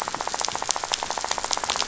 {"label": "biophony, rattle", "recorder": "SoundTrap 500"}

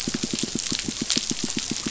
{"label": "biophony, pulse", "recorder": "SoundTrap 500"}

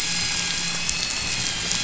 {"label": "anthrophony, boat engine", "recorder": "SoundTrap 500"}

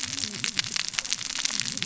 {"label": "biophony, cascading saw", "recorder": "SoundTrap 600 or HydroMoth"}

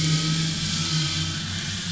{"label": "anthrophony, boat engine", "recorder": "SoundTrap 500"}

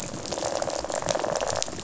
{"label": "biophony, rattle response", "recorder": "SoundTrap 500"}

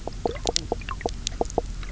{"label": "biophony, knock croak", "recorder": "SoundTrap 300"}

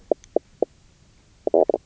{"label": "biophony, knock croak", "recorder": "SoundTrap 300"}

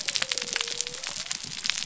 {"label": "biophony", "recorder": "SoundTrap 300"}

